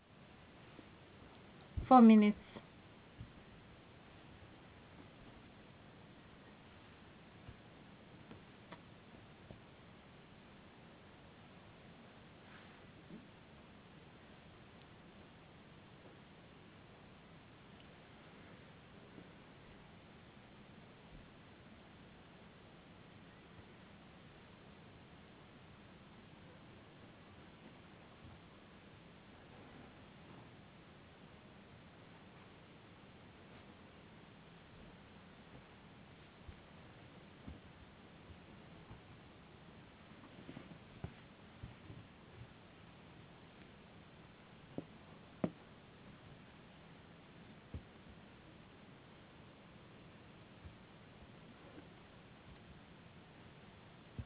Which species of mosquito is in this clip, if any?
no mosquito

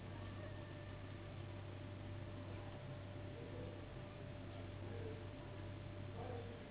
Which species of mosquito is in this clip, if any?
Anopheles gambiae s.s.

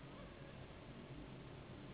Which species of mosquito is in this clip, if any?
Anopheles gambiae s.s.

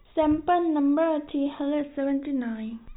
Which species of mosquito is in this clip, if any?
no mosquito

